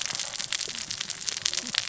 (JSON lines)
{"label": "biophony, cascading saw", "recorder": "SoundTrap 600 or HydroMoth"}